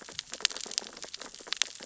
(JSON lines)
{"label": "biophony, sea urchins (Echinidae)", "recorder": "SoundTrap 600 or HydroMoth"}